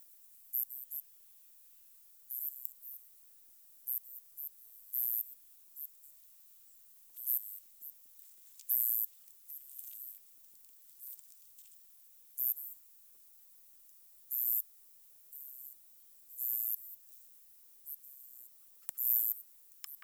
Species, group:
Odontura aspericauda, Orthoptera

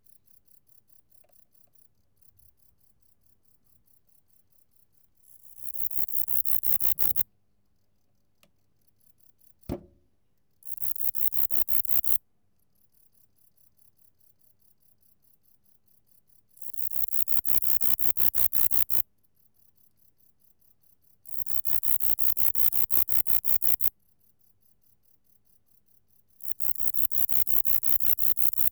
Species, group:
Bicolorana bicolor, Orthoptera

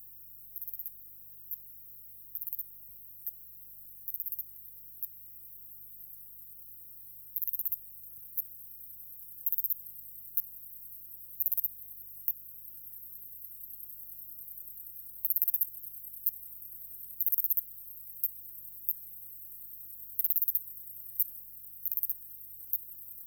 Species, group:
Ancistrura nigrovittata, Orthoptera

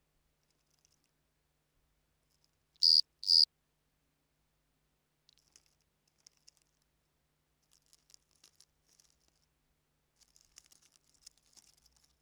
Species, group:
Eumodicogryllus bordigalensis, Orthoptera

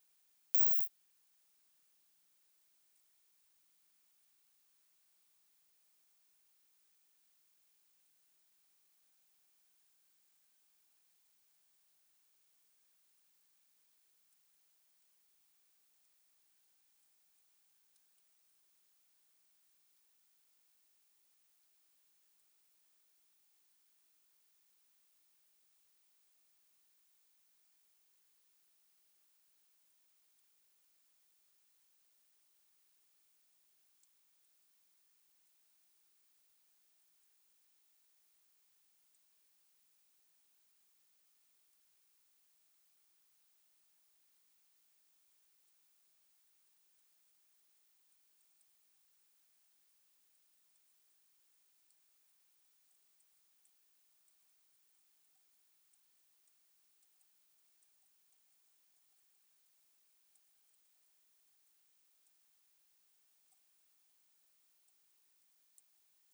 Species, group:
Isophya modestior, Orthoptera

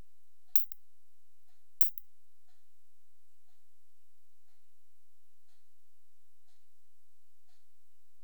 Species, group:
Isophya lemnotica, Orthoptera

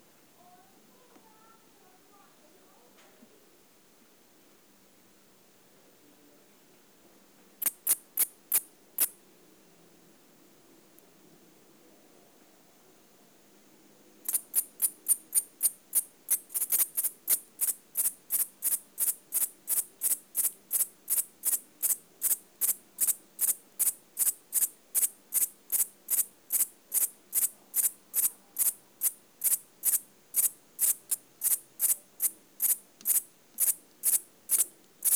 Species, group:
Liara magna, Orthoptera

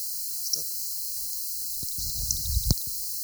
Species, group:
Platycleis albopunctata, Orthoptera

